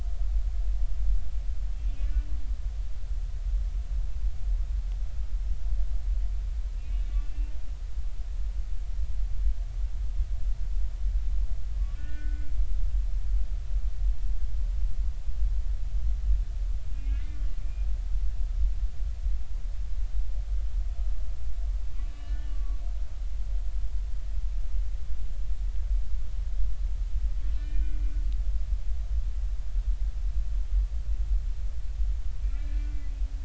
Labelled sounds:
2.0	2.3	humpback whale, 1.7 to 2.4 kHz
6.7	7.6	humpback whale, 2.3 to 2.9 kHz
11.9	12.5	humpback whale, 1.4 to 2.8 kHz
16.9	17.9	humpback whale, 2.0 to 2.8 kHz
22.1	22.8	humpback whale, 1.0 to 3.9 kHz
27.4	28.0	humpback whale, 1.4 to 3.1 kHz
32.4	33.1	humpback whale, 2.0 to 2.5 kHz

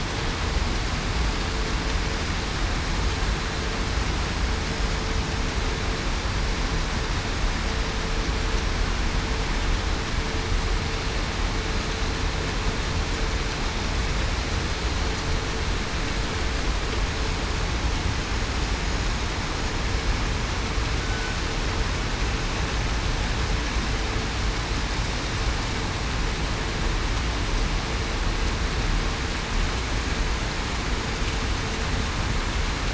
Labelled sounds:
21.0	21.3	killer whale, southern resident, 1.45 to 1.52 kHz

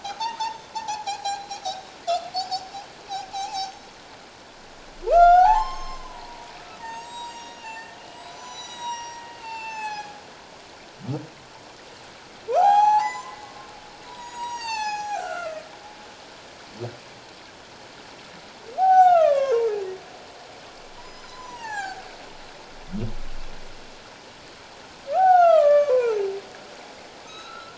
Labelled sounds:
0.1	1.9	humpback whale, 0.78 to 6.6 kHz
2.3	2.7	humpback whale, 4.3 to 5.7 kHz
3.3	3.8	humpback whale, 0.78 to 6.3 kHz
5.1	6.5	humpback whale, 0.78 to 7.6 kHz
6.8	10.2	humpback whale, 0.78 to 8.0 kHz
12.5	13.7	humpback whale, 0.78 to 8.0 kHz
14.1	15.7	humpback whale, 0.78 to 7.8 kHz
18.8	19.7	humpback whale, 0.78 to 6.1 kHz
21.0	22.0	humpback whale, 0.78 to 7.2 kHz
25.1	26.2	humpback whale, 0.78 to 6.5 kHz
27.3	27.7	humpback whale, 1.2 to 4.1 kHz

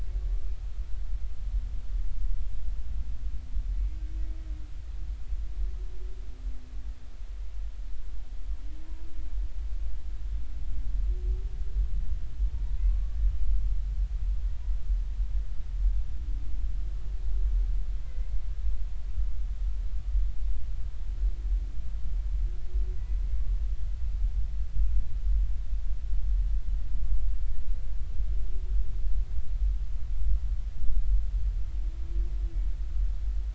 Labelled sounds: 18.0	18.4	humpback whale, 2.0 to 2.2 kHz

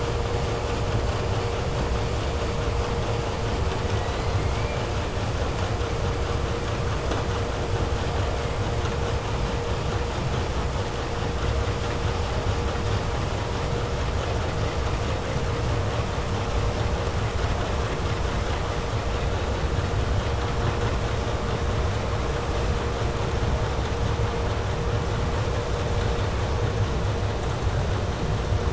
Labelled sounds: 3.6	4.9	killer whale, 0.10 to 4.8 kHz

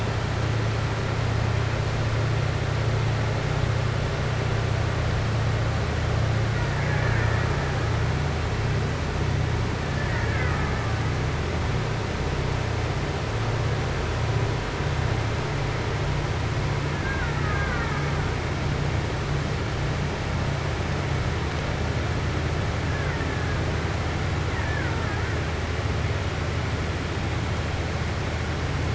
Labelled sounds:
10.0	10.8	killer whale, Bigg's (transient), 0.55 to 2.3 kHz
16.9	18.1	killer whale, Bigg's (transient), 0.86 to 2.3 kHz
24.4	25.0	killer whale, Bigg's (transient), 0.90 to 2.3 kHz

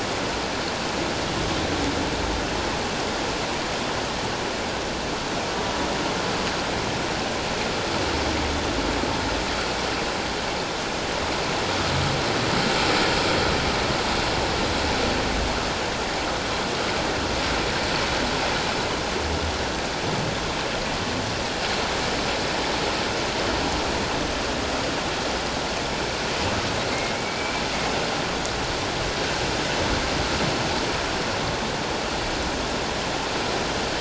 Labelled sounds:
27.2	27.6	humpback whale, 2.2 to 2.4 kHz

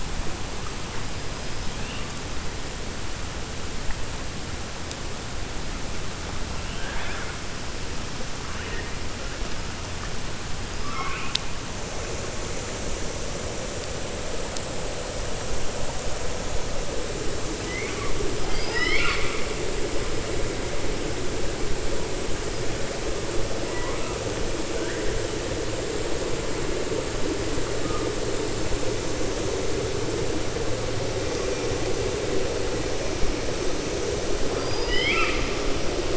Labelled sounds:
18.4	19.5	killer whale, 0.87 to 5.4 kHz
34.5	35.5	killer whale, 1.2 to 5.2 kHz

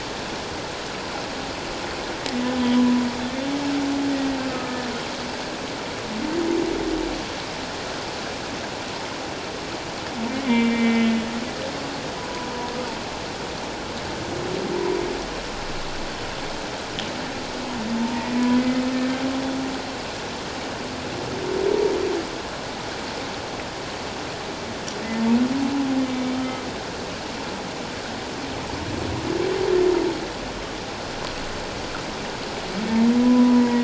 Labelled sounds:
4.5	4.9	humpback whale, 1.2 to 1.8 kHz
10.4	11.2	humpback whale, 2.0 to 2.4 kHz
18.0	18.8	humpback whale, 0.88 to 2.1 kHz
26.1	26.6	humpback whale, 1.2 to 2.3 kHz
33.2	33.8	humpback whale, 0.91 to 2.0 kHz

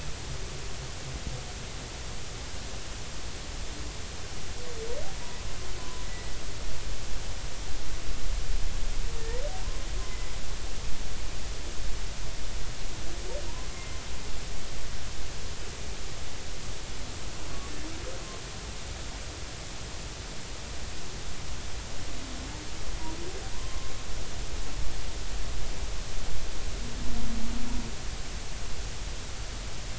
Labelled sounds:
5.8	6.4	humpback whale, 0.96 to 2.0 kHz
9.2	9.4	humpback whale, 1.7 to 2.0 kHz
13.7	14.0	humpback whale, 2.0 to 2.2 kHz
23.5	23.9	humpback whale, 0.93 to 1.2 kHz

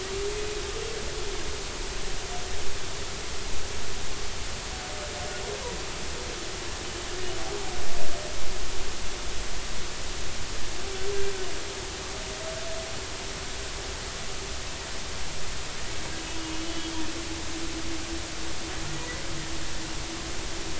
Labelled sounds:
16.7	16.9	humpback whale, 3.2 to 3.4 kHz
17.5	19.2	humpback whale, 1.8 to 3.1 kHz

